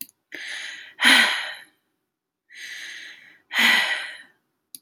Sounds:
Sigh